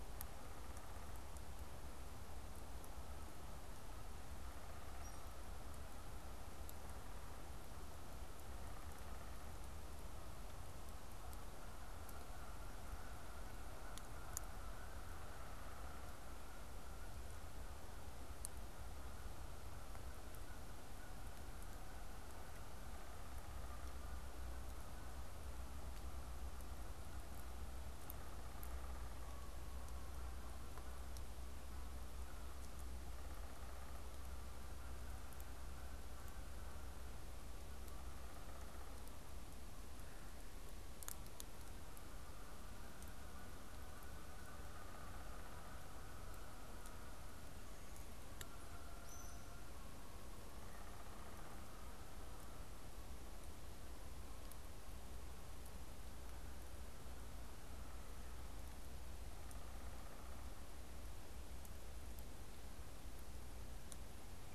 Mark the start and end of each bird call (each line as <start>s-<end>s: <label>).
0.0s-1.5s: Downy Woodpecker (Dryobates pubescens)
4.2s-5.9s: Downy Woodpecker (Dryobates pubescens)
6.6s-10.0s: Downy Woodpecker (Dryobates pubescens)
10.9s-53.2s: Canada Goose (Branta canadensis)
14.8s-16.1s: Downy Woodpecker (Dryobates pubescens)
22.5s-23.8s: Downy Woodpecker (Dryobates pubescens)
27.9s-29.3s: Downy Woodpecker (Dryobates pubescens)
32.9s-34.2s: Downy Woodpecker (Dryobates pubescens)
37.5s-39.2s: Downy Woodpecker (Dryobates pubescens)
44.4s-45.7s: Downy Woodpecker (Dryobates pubescens)
50.3s-51.8s: Downy Woodpecker (Dryobates pubescens)
59.1s-60.7s: Downy Woodpecker (Dryobates pubescens)